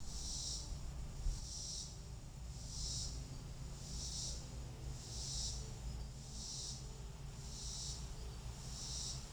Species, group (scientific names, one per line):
Neotibicen robinsonianus
Cicadidae